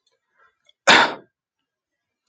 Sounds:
Cough